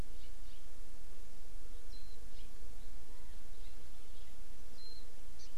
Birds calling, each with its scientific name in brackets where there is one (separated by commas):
Hawaii Amakihi (Chlorodrepanis virens), Warbling White-eye (Zosterops japonicus)